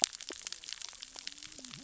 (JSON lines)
{"label": "biophony, cascading saw", "recorder": "SoundTrap 600 or HydroMoth"}